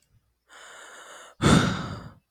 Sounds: Sigh